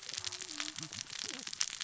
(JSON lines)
{"label": "biophony, cascading saw", "recorder": "SoundTrap 600 or HydroMoth"}